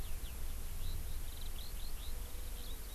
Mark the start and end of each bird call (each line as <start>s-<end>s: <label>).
0.0s-3.0s: Eurasian Skylark (Alauda arvensis)